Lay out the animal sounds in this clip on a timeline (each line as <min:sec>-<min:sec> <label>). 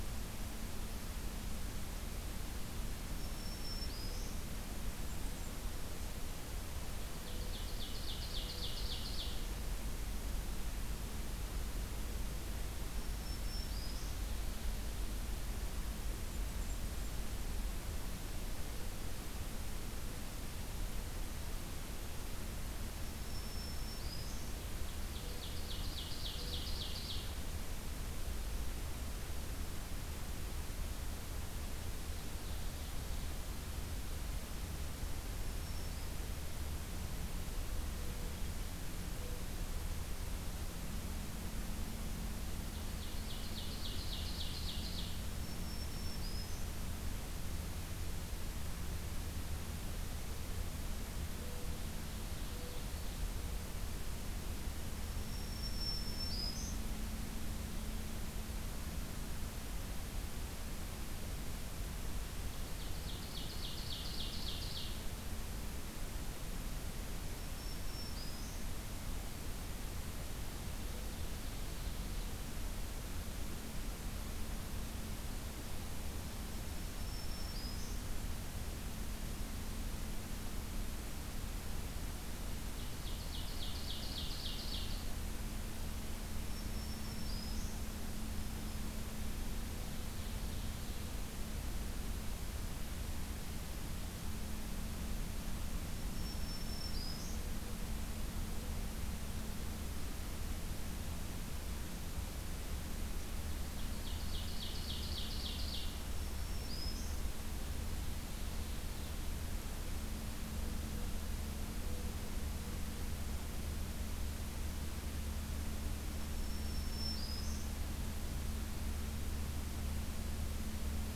0:03.2-0:04.5 Black-throated Green Warbler (Setophaga virens)
0:04.6-0:05.6 Blackburnian Warbler (Setophaga fusca)
0:07.1-0:09.5 Ovenbird (Seiurus aurocapilla)
0:12.9-0:14.2 Black-throated Green Warbler (Setophaga virens)
0:16.0-0:17.3 Blackburnian Warbler (Setophaga fusca)
0:23.2-0:24.6 Black-throated Green Warbler (Setophaga virens)
0:24.7-0:27.2 Ovenbird (Seiurus aurocapilla)
0:31.9-0:33.3 Ovenbird (Seiurus aurocapilla)
0:35.3-0:36.1 Black-throated Green Warbler (Setophaga virens)
0:42.7-0:45.2 Ovenbird (Seiurus aurocapilla)
0:45.3-0:46.7 Black-throated Green Warbler (Setophaga virens)
0:51.7-0:53.4 Ovenbird (Seiurus aurocapilla)
0:55.0-0:56.8 Black-throated Green Warbler (Setophaga virens)
1:02.4-1:05.1 Ovenbird (Seiurus aurocapilla)
1:07.2-1:08.7 Black-throated Green Warbler (Setophaga virens)
1:10.9-1:12.5 Ovenbird (Seiurus aurocapilla)
1:16.5-1:18.2 Black-throated Green Warbler (Setophaga virens)
1:22.6-1:25.0 Ovenbird (Seiurus aurocapilla)
1:26.4-1:27.8 Black-throated Green Warbler (Setophaga virens)
1:28.3-1:28.8 Black-throated Green Warbler (Setophaga virens)
1:29.8-1:31.2 Ovenbird (Seiurus aurocapilla)
1:36.0-1:37.5 Black-throated Green Warbler (Setophaga virens)
1:43.7-1:45.9 Ovenbird (Seiurus aurocapilla)
1:46.0-1:47.2 Black-throated Green Warbler (Setophaga virens)
1:47.9-1:49.1 Ovenbird (Seiurus aurocapilla)
1:56.2-1:57.7 Black-throated Green Warbler (Setophaga virens)